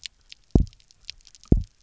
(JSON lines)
{"label": "biophony, double pulse", "recorder": "SoundTrap 300"}